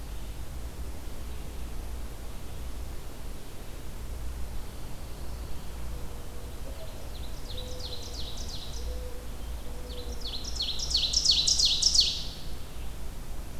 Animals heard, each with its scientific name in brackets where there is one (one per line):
Red-eyed Vireo (Vireo olivaceus)
Pine Warbler (Setophaga pinus)
Ovenbird (Seiurus aurocapilla)
Mourning Dove (Zenaida macroura)